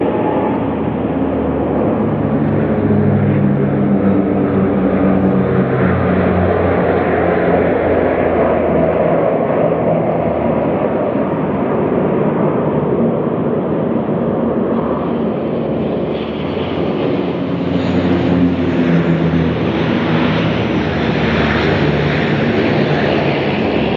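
Loud, constant white noise associated with aircraft. 0.0 - 24.0
A plane is rumbling as it flies nearby. 3.0 - 8.2
A plane rumbles as it flies by nearby. 17.5 - 24.0

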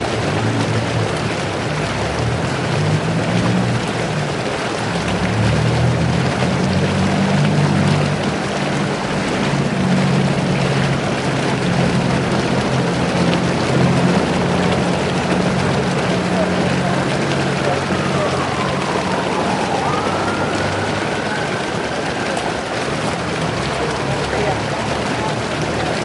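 Rain falling accompanied by the hum of a car engine. 0.0 - 17.7
A police siren is sounding. 17.7 - 26.0

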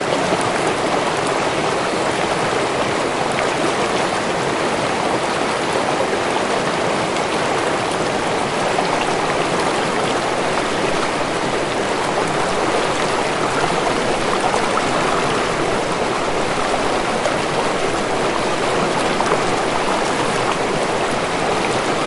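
Flowing water. 6.9 - 11.0
Water bubbling. 11.2 - 15.5
Water rushing and bubbling intensely. 15.6 - 22.1

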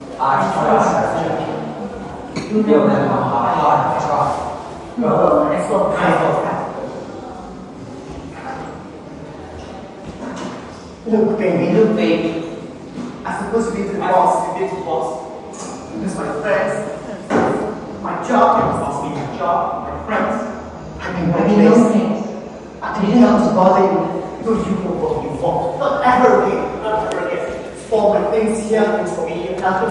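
Someone is speaking in a very echoey room. 0.0 - 7.2
People talking in a room. 7.2 - 11.0
Someone is speaking in a very echoey room. 11.0 - 29.9

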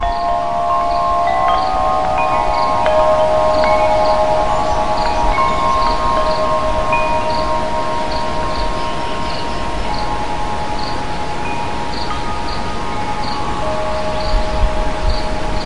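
Wind chimes gently ring while birds, critters, and hens make sounds, accompanied by running water in the background. 0.0 - 15.7

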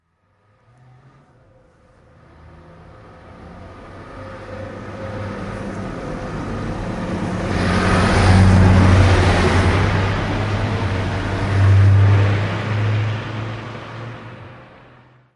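A truck with a loud engine is drawing closer. 0.0 - 7.7
A truck with a loud engine producing metallic sounds drives by closely and moves into the distance. 7.7 - 11.5
A truck with a loud engine produces metallic sounds with sound spikes while driving at a middle distance. 11.5 - 13.4
A truck engine produces loud metallic sounds. 13.4 - 15.4

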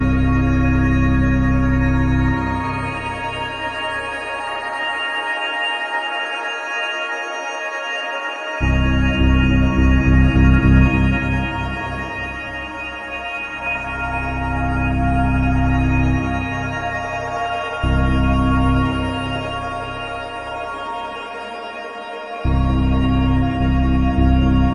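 An organ is playing. 0.0 - 24.7

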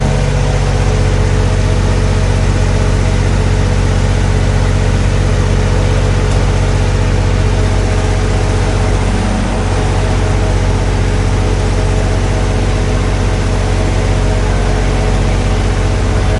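A large engine is rumbling continuously at idle. 0.0 - 16.4

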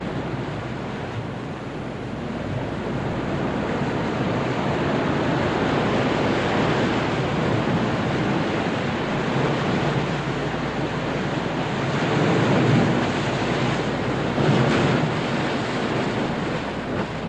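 Sea waves crashing softly on the beach. 0.0 - 17.3

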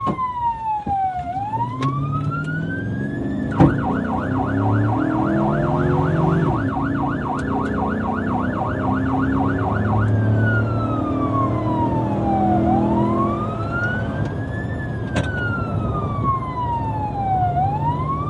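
A car is accelerating steadily outdoors. 0.0 - 18.3
A loud siren is blaring continuously. 0.0 - 18.3

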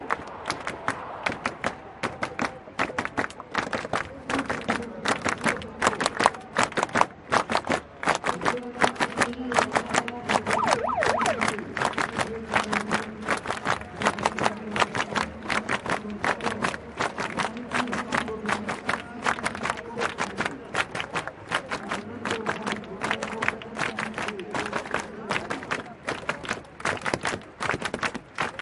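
Rhythmic clapping. 0.0 - 28.6
People speaking in the distance. 1.8 - 27.6
A siren sounds in the distance. 10.4 - 11.9

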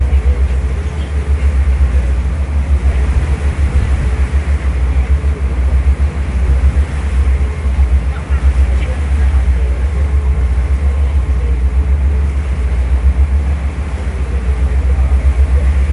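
The noise of ocean waves and strong wind overpowers the feeble sound of diesel engines on a ferry deck, with weak background chatter from people. 0.0 - 15.9
A bird chirps distantly, overpowered by ocean noise. 0.6 - 2.3

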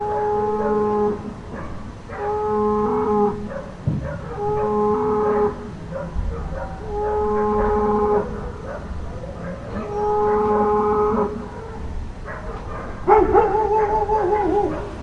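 A dog barks continuously in the distance. 0.0 - 15.0
A camel grunts loudly. 0.0 - 1.1
A camel grunts loudly with periodic gaps. 2.2 - 3.3
A camel grunts loudly. 4.4 - 5.5
A camel grunts. 7.0 - 8.2
A camel grunts. 9.9 - 11.3
A dog barks loudly. 13.0 - 14.8

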